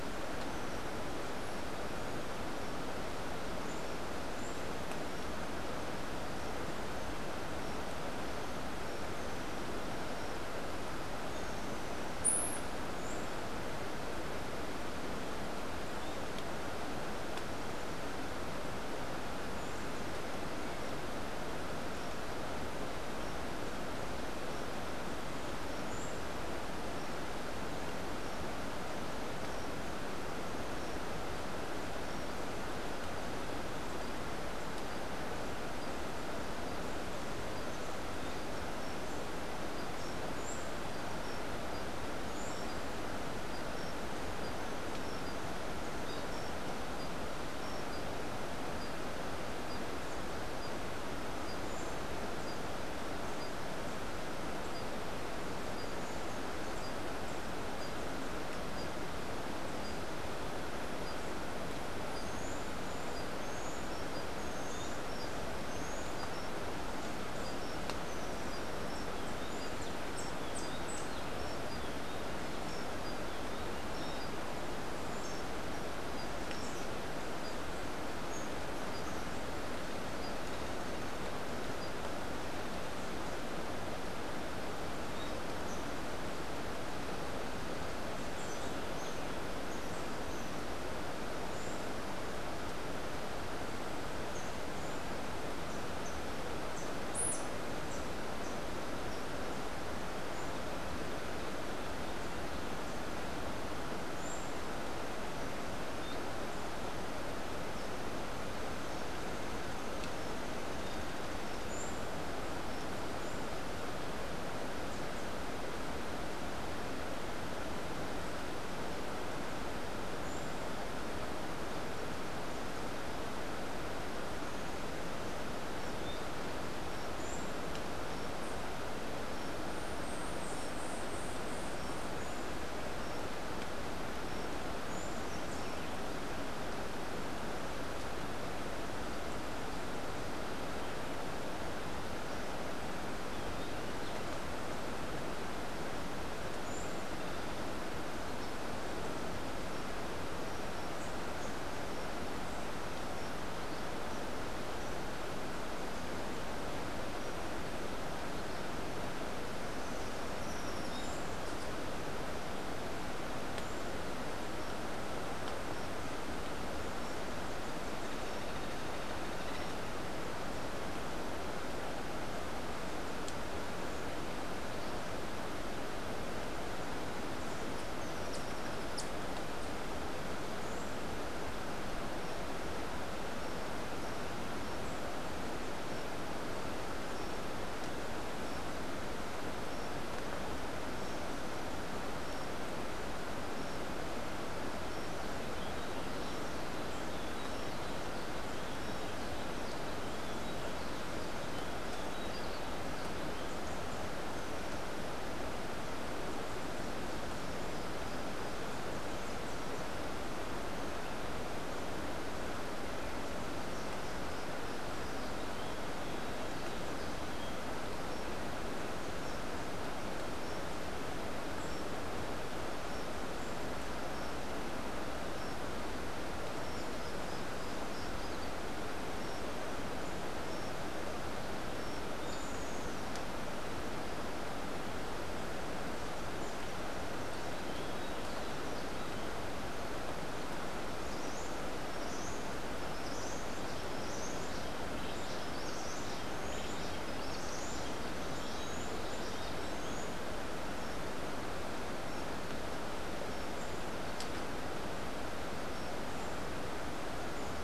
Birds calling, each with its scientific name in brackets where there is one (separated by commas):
Rufous-tailed Hummingbird (Amazilia tzacatl), Buff-throated Saltator (Saltator maximus), Cabanis's Wren (Cantorchilus modestus), White-eared Ground-Sparrow (Melozone leucotis)